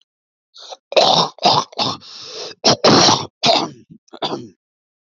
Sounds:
Throat clearing